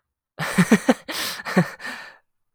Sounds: Laughter